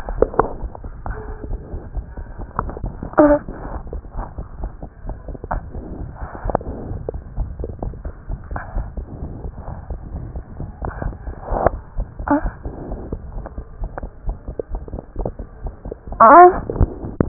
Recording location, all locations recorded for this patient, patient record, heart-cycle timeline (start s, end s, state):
aortic valve (AV)
aortic valve (AV)+pulmonary valve (PV)+tricuspid valve (TV)+mitral valve (MV)
#Age: Child
#Sex: Male
#Height: 71.0 cm
#Weight: 9.1 kg
#Pregnancy status: False
#Murmur: Absent
#Murmur locations: nan
#Most audible location: nan
#Systolic murmur timing: nan
#Systolic murmur shape: nan
#Systolic murmur grading: nan
#Systolic murmur pitch: nan
#Systolic murmur quality: nan
#Diastolic murmur timing: nan
#Diastolic murmur shape: nan
#Diastolic murmur grading: nan
#Diastolic murmur pitch: nan
#Diastolic murmur quality: nan
#Outcome: Abnormal
#Campaign: 2015 screening campaign
0.00	8.27	unannotated
8.27	8.37	S1
8.37	8.49	systole
8.49	8.60	S2
8.60	8.74	diastole
8.74	8.86	S1
8.86	8.95	systole
8.95	9.06	S2
9.06	9.20	diastole
9.20	9.28	S1
9.28	9.42	systole
9.42	9.51	S2
9.51	9.65	diastole
9.65	9.76	S1
9.76	9.89	systole
9.89	9.99	S2
9.99	10.12	diastole
10.12	10.20	S1
10.20	10.34	systole
10.34	10.42	S2
10.42	10.58	diastole
10.58	10.67	S1
10.67	17.28	unannotated